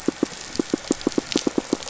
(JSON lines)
{"label": "biophony, pulse", "recorder": "SoundTrap 500"}
{"label": "anthrophony, boat engine", "recorder": "SoundTrap 500"}